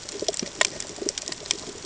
{"label": "ambient", "recorder": "HydroMoth"}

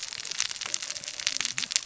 {"label": "biophony, cascading saw", "recorder": "SoundTrap 600 or HydroMoth"}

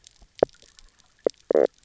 {"label": "biophony, knock croak", "recorder": "SoundTrap 300"}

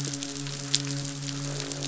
{"label": "biophony, midshipman", "recorder": "SoundTrap 500"}
{"label": "biophony, croak", "recorder": "SoundTrap 500"}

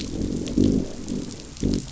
{"label": "biophony, growl", "recorder": "SoundTrap 500"}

